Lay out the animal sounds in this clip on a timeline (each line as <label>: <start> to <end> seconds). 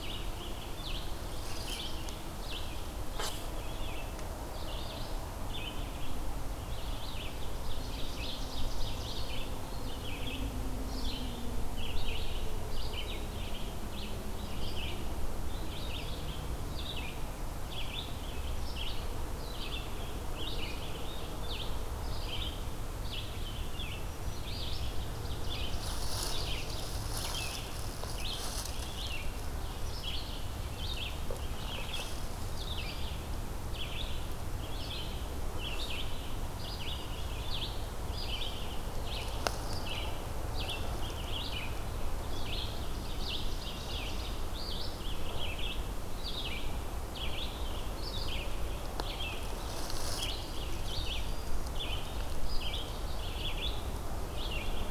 Red-eyed Vireo (Vireo olivaceus): 0.0 to 54.9 seconds
Ovenbird (Seiurus aurocapilla): 7.5 to 9.6 seconds
Ovenbird (Seiurus aurocapilla): 25.2 to 26.7 seconds
Ovenbird (Seiurus aurocapilla): 43.0 to 44.6 seconds